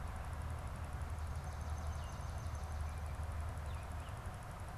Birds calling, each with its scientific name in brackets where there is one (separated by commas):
Swamp Sparrow (Melospiza georgiana), American Robin (Turdus migratorius)